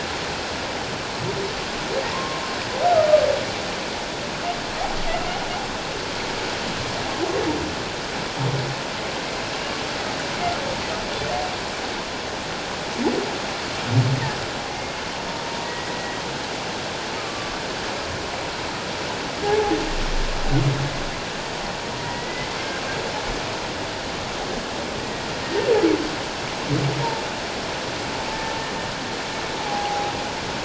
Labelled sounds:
2.1	2.4	humpback whale, 0.91 to 1.1 kHz
14.7	15.0	humpback whale, 2.1 to 2.2 kHz
15.6	16.2	humpback whale, 1.8 to 2.0 kHz
17.2	17.6	humpback whale, 1.1 to 1.3 kHz
19.4	19.8	humpback whale, 0.78 to 0.91 kHz
22.0	22.5	humpback whale, 1.9 to 2.1 kHz
25.0	25.7	humpback whale, 1.8 to 1.9 kHz
29.6	30.1	humpback whale, 0.78 to 0.88 kHz

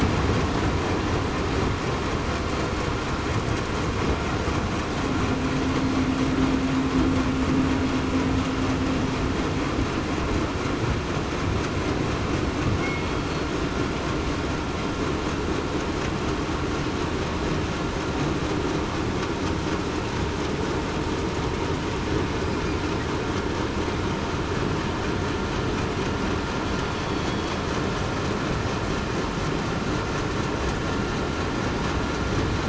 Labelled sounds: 26.9	27.5	killer whale, southern resident, 3.3 to 3.4 kHz

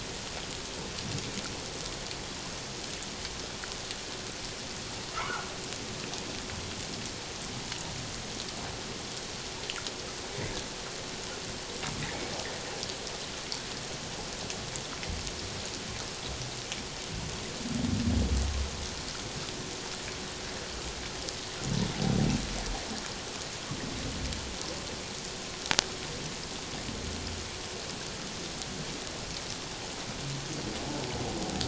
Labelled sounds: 5.1	5.5	humpback whale, 0.78 to 1.5 kHz

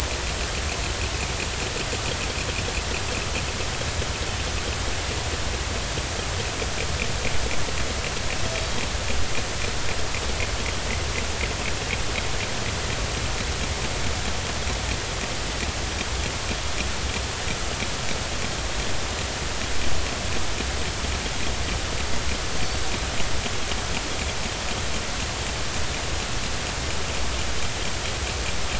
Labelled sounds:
22.6	22.9	killer whale, northern resident, G clan, 4.4 to 4.7 kHz

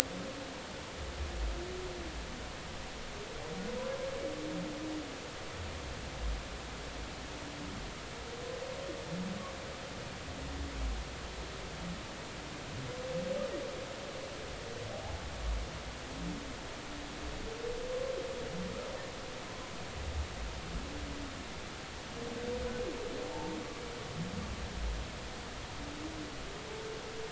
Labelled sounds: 23.3	23.6	humpback whale, 0.80 to 0.96 kHz

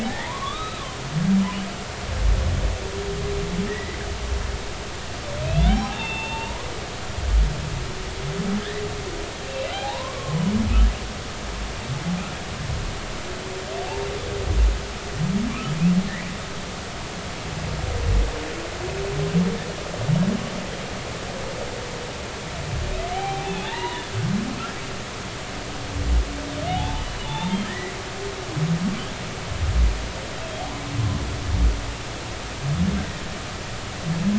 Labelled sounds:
0.1	0.8	humpback whale, 0.80 to 4.0 kHz
3.7	4.0	humpback whale, 1.7 to 2.2 kHz
5.4	6.7	humpback whale, 0.80 to 3.8 kHz
9.5	10.5	humpback whale, 0.80 to 4.0 kHz
23.1	24.2	humpback whale, 0.80 to 4.1 kHz
26.7	27.9	humpback whale, 0.80 to 3.8 kHz

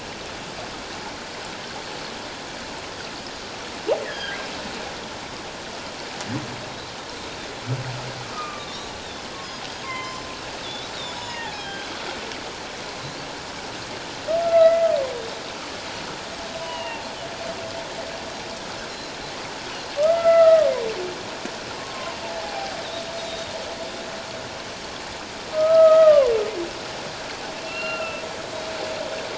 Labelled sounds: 4.0	4.5	humpback whale, 1.5 to 2.0 kHz
6.6	6.9	Pacific white-sided dolphin, 3.8 to 4.2 kHz
8.3	8.9	humpback whale, 1.1 to 1.3 kHz
8.6	8.9	Pacific white-sided dolphin, 3.5 to 4.3 kHz
9.8	10.3	humpback whale, 0.94 to 6.2 kHz
11.2	11.6	humpback whale, 0.81 to 2.9 kHz
11.2	11.9	Pacific white-sided dolphin, 3.1 to 5.3 kHz
14.4	14.9	humpback whale, 1.2 to 2.2 kHz
16.6	17.0	humpback whale, 0.84 to 3.0 kHz
20.0	20.7	humpback whale, 1.1 to 2.1 kHz
21.7	22.8	humpback whale, 0.78 to 1.1 kHz
23.2	23.5	Pacific white-sided dolphin, 3.6 to 3.8 kHz
25.5	26.3	humpback whale, 0.97 to 2.0 kHz
27.6	28.2	humpback whale, 1.3 to 4.2 kHz

